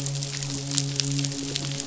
{"label": "biophony, midshipman", "recorder": "SoundTrap 500"}
{"label": "biophony", "recorder": "SoundTrap 500"}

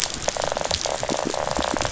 {"label": "biophony, rattle", "recorder": "SoundTrap 500"}
{"label": "biophony", "recorder": "SoundTrap 500"}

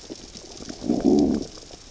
{"label": "biophony, growl", "recorder": "SoundTrap 600 or HydroMoth"}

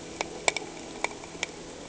{"label": "anthrophony, boat engine", "recorder": "HydroMoth"}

